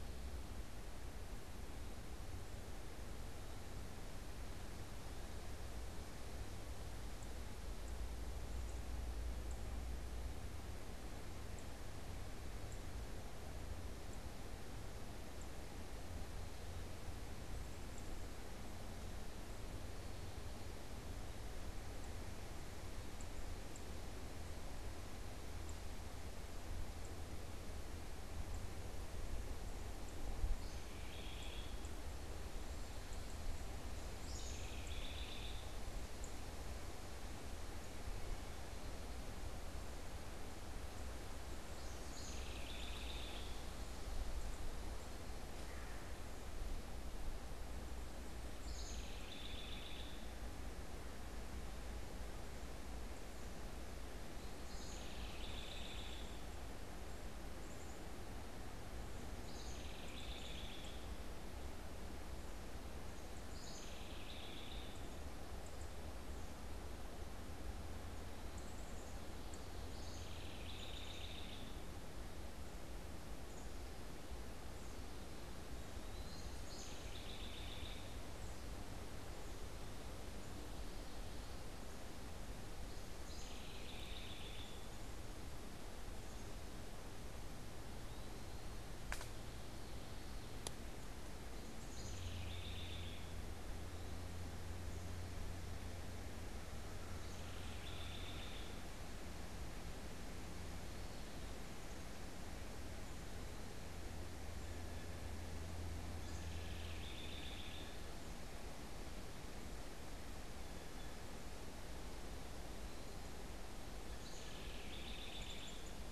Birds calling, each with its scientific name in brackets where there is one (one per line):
House Wren (Troglodytes aedon)
Common Yellowthroat (Geothlypis trichas)
Eastern Wood-Pewee (Contopus virens)
unidentified bird